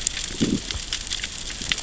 {"label": "biophony, growl", "recorder": "SoundTrap 600 or HydroMoth"}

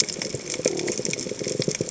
{"label": "biophony", "recorder": "HydroMoth"}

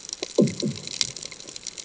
{"label": "anthrophony, bomb", "recorder": "HydroMoth"}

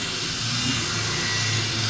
{"label": "anthrophony, boat engine", "recorder": "SoundTrap 500"}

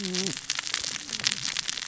{"label": "biophony, cascading saw", "recorder": "SoundTrap 600 or HydroMoth"}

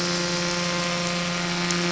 {"label": "anthrophony, boat engine", "recorder": "SoundTrap 500"}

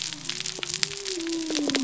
{"label": "biophony", "recorder": "SoundTrap 300"}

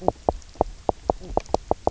{"label": "biophony, knock croak", "recorder": "SoundTrap 300"}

